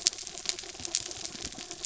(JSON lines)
{"label": "anthrophony, mechanical", "recorder": "SoundTrap 300"}